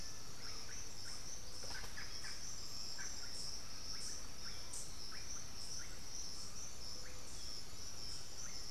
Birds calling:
Undulated Tinamou (Crypturellus undulatus), Ringed Antpipit (Corythopis torquatus), Russet-backed Oropendola (Psarocolius angustifrons)

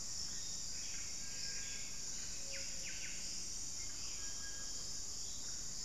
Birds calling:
Buff-breasted Wren (Cantorchilus leucotis), Ruddy Quail-Dove (Geotrygon montana), Little Tinamou (Crypturellus soui)

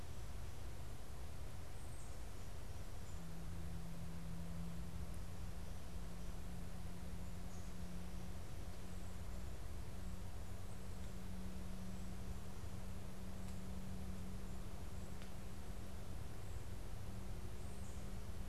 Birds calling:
Tufted Titmouse (Baeolophus bicolor)

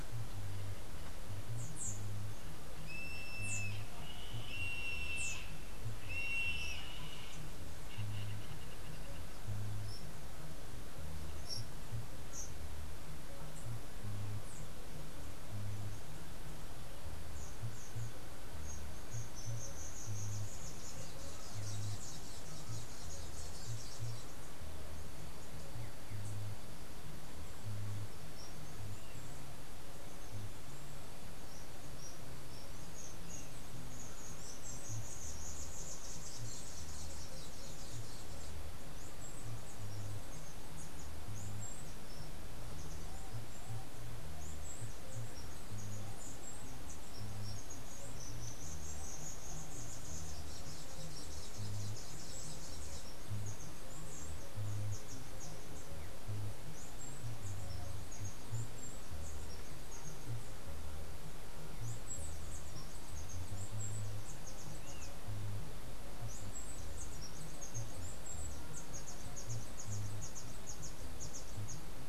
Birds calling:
Yellow-headed Caracara (Milvago chimachima), unidentified bird, Black-capped Tanager (Stilpnia heinei), Chestnut-capped Brushfinch (Arremon brunneinucha)

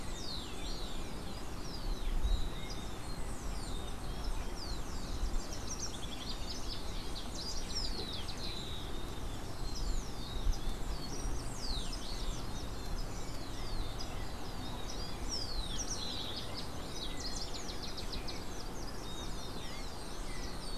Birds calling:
House Wren (Troglodytes aedon), Rufous-collared Sparrow (Zonotrichia capensis)

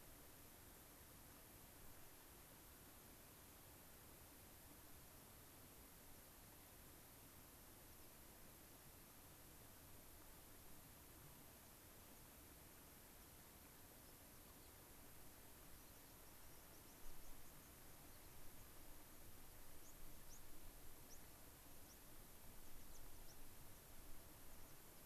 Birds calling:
White-crowned Sparrow (Zonotrichia leucophrys), unidentified bird, American Pipit (Anthus rubescens)

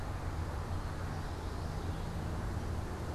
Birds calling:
Common Yellowthroat (Geothlypis trichas)

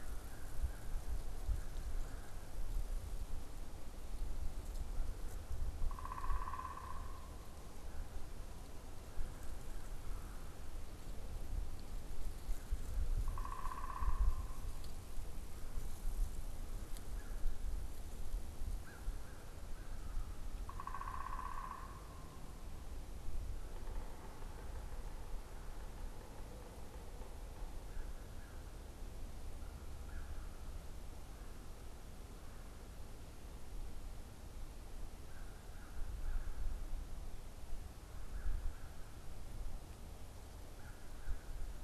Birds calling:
unidentified bird, Yellow-bellied Sapsucker (Sphyrapicus varius), American Crow (Corvus brachyrhynchos)

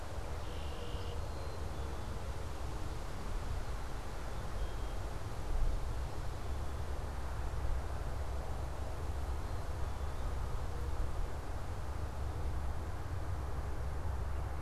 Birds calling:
Black-capped Chickadee (Poecile atricapillus), Red-winged Blackbird (Agelaius phoeniceus)

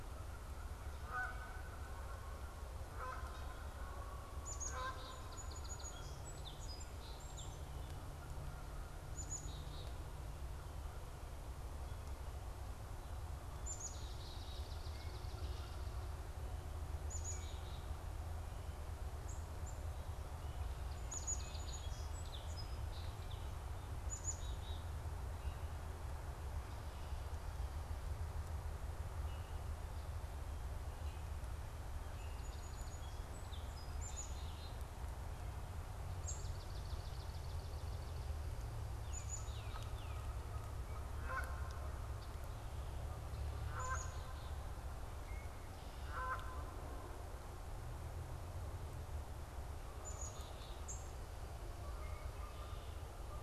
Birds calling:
Black-capped Chickadee (Poecile atricapillus), Swamp Sparrow (Melospiza georgiana), Tufted Titmouse (Baeolophus bicolor), American Redstart (Setophaga ruticilla), Canada Goose (Branta canadensis), unidentified bird, Song Sparrow (Melospiza melodia)

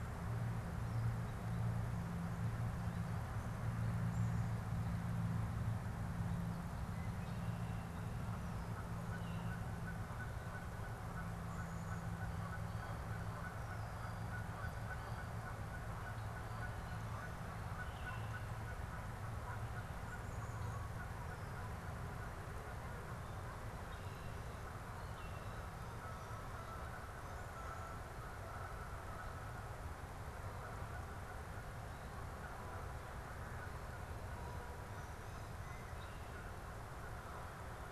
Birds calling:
Baltimore Oriole (Icterus galbula), Red-winged Blackbird (Agelaius phoeniceus), Canada Goose (Branta canadensis)

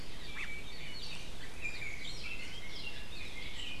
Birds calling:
Red-billed Leiothrix (Leiothrix lutea)

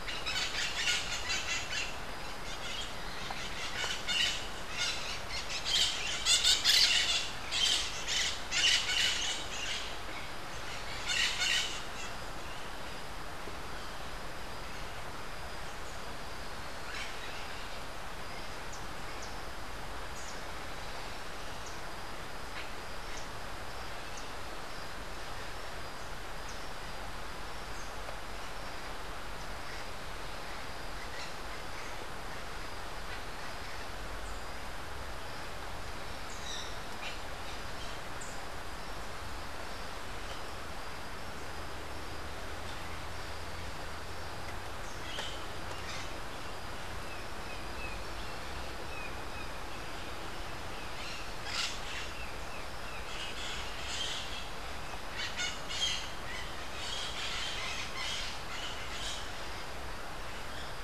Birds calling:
Crimson-fronted Parakeet (Psittacara finschi), Rufous-capped Warbler (Basileuterus rufifrons)

